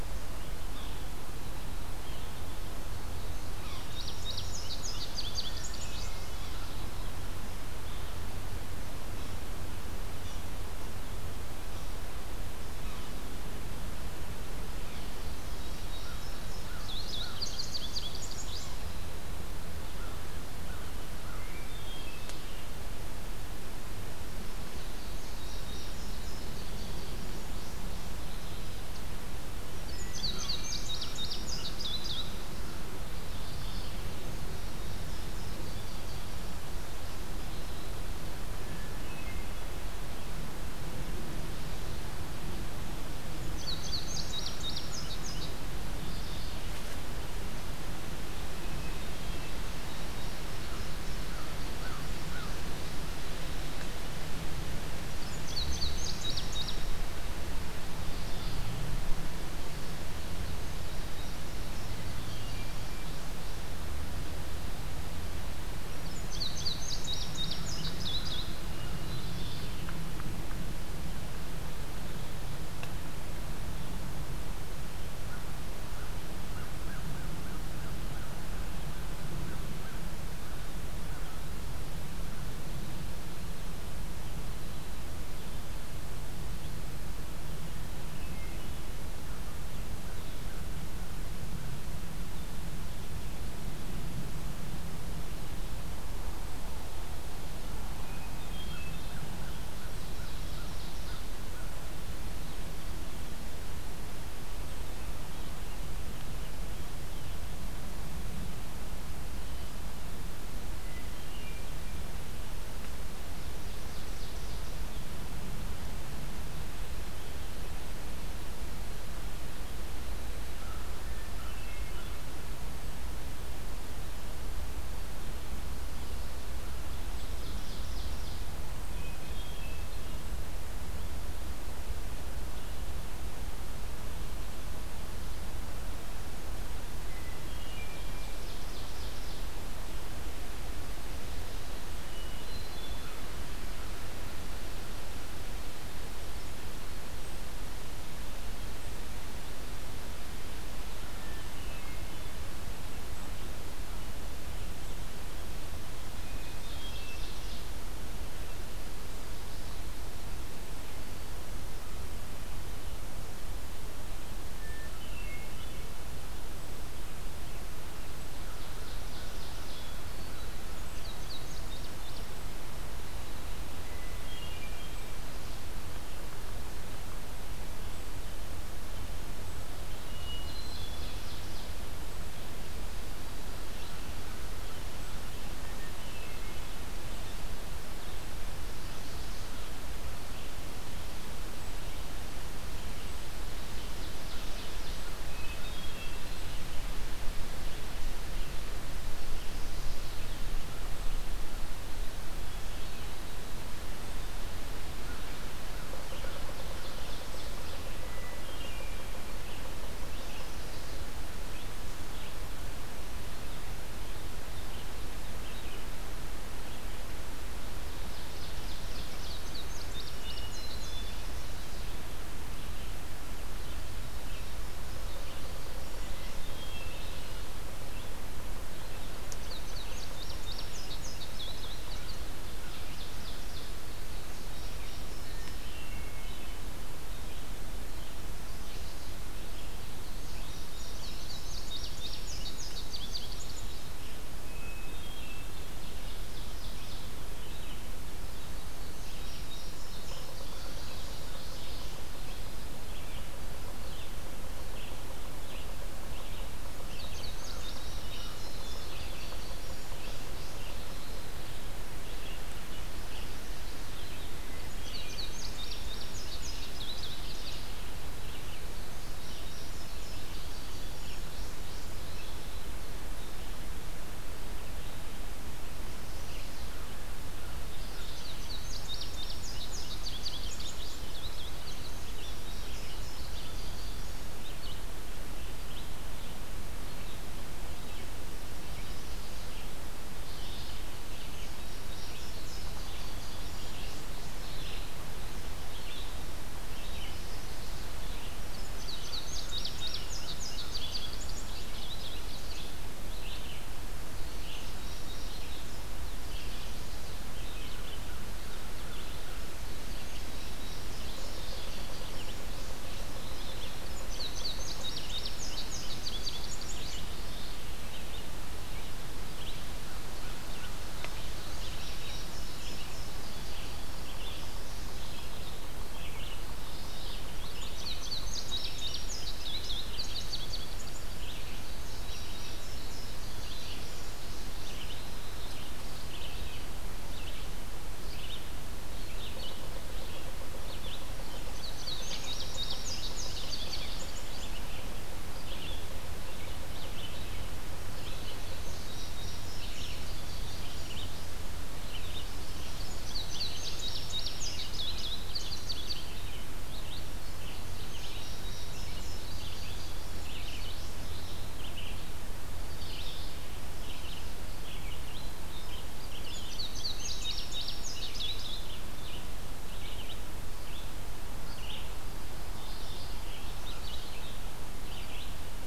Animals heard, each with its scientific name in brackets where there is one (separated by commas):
Mourning Warbler (Geothlypis philadelphia), Indigo Bunting (Passerina cyanea), American Crow (Corvus brachyrhynchos), Hermit Thrush (Catharus guttatus), Yellow-bellied Sapsucker (Sphyrapicus varius), Red-eyed Vireo (Vireo olivaceus), Ovenbird (Seiurus aurocapilla)